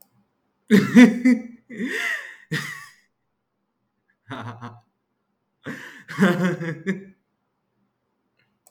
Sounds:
Laughter